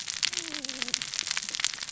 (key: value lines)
label: biophony, cascading saw
recorder: SoundTrap 600 or HydroMoth